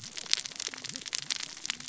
{"label": "biophony, cascading saw", "recorder": "SoundTrap 600 or HydroMoth"}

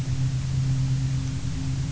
{"label": "anthrophony, boat engine", "recorder": "SoundTrap 300"}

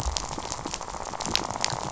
{"label": "biophony, rattle", "recorder": "SoundTrap 500"}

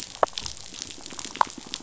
{"label": "biophony", "recorder": "SoundTrap 500"}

